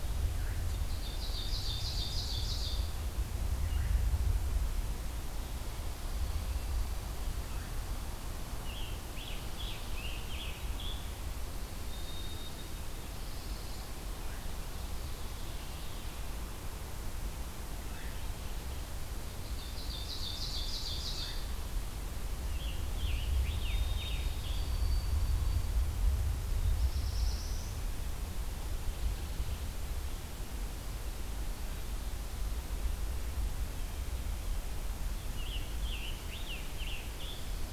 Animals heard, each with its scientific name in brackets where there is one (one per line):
Ovenbird (Seiurus aurocapilla)
Scarlet Tanager (Piranga olivacea)
White-throated Sparrow (Zonotrichia albicollis)
Pine Warbler (Setophaga pinus)
Black-throated Blue Warbler (Setophaga caerulescens)